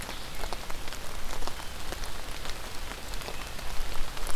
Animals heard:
forest ambience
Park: Marsh-Billings-Rockefeller National Historical Park